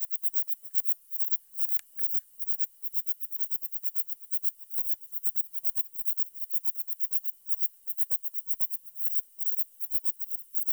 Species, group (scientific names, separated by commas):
Platycleis intermedia, Orthoptera